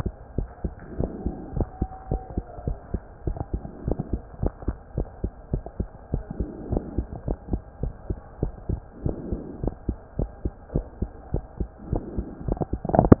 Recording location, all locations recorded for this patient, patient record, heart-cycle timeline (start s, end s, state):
mitral valve (MV)
aortic valve (AV)+pulmonary valve (PV)+tricuspid valve (TV)+mitral valve (MV)
#Age: Child
#Sex: Male
#Height: 129.0 cm
#Weight: 25.0 kg
#Pregnancy status: False
#Murmur: Absent
#Murmur locations: nan
#Most audible location: nan
#Systolic murmur timing: nan
#Systolic murmur shape: nan
#Systolic murmur grading: nan
#Systolic murmur pitch: nan
#Systolic murmur quality: nan
#Diastolic murmur timing: nan
#Diastolic murmur shape: nan
#Diastolic murmur grading: nan
#Diastolic murmur pitch: nan
#Diastolic murmur quality: nan
#Outcome: Normal
#Campaign: 2015 screening campaign
0.00	0.34	unannotated
0.34	0.48	S1
0.48	0.61	systole
0.61	0.72	S2
0.72	0.96	diastole
0.96	1.10	S1
1.10	1.22	systole
1.22	1.36	S2
1.36	1.54	diastole
1.54	1.68	S1
1.68	1.78	systole
1.78	1.88	S2
1.88	2.10	diastole
2.10	2.22	S1
2.22	2.34	systole
2.34	2.44	S2
2.44	2.64	diastole
2.64	2.78	S1
2.78	2.91	systole
2.91	3.04	S2
3.04	3.23	diastole
3.23	3.38	S1
3.38	3.50	systole
3.50	3.64	S2
3.64	3.84	diastole
3.84	3.98	S1
3.98	4.10	systole
4.10	4.24	S2
4.24	4.40	diastole
4.40	4.52	S1
4.52	4.64	systole
4.64	4.76	S2
4.76	4.93	diastole
4.93	5.08	S1
5.08	5.20	systole
5.20	5.32	S2
5.32	5.50	diastole
5.50	5.64	S1
5.64	5.76	systole
5.76	5.90	S2
5.90	6.10	diastole
6.10	6.24	S1
6.24	6.38	systole
6.38	6.52	S2
6.52	6.70	diastole
6.70	6.84	S1
6.84	6.96	systole
6.96	7.06	S2
7.06	7.26	diastole
7.26	7.38	S1
7.38	7.50	systole
7.50	7.62	S2
7.62	7.80	diastole
7.80	7.94	S1
7.94	8.06	systole
8.06	8.18	S2
8.18	8.38	diastole
8.38	8.52	S1
8.52	8.66	systole
8.66	8.80	S2
8.80	9.02	diastole
9.02	9.16	S1
9.16	9.30	systole
9.30	9.40	S2
9.40	9.60	diastole
9.60	9.74	S1
9.74	9.85	systole
9.85	9.98	S2
9.98	10.16	diastole
10.16	10.30	S1
10.30	10.42	systole
10.42	10.54	S2
10.54	10.72	diastole
10.72	10.86	S1
10.86	10.98	systole
10.98	11.10	S2
11.10	11.31	diastole
11.31	11.44	S1
11.44	11.58	systole
11.58	11.68	S2
11.68	11.90	diastole
11.90	12.04	S1
12.04	12.16	systole
12.16	12.26	S2
12.26	13.20	unannotated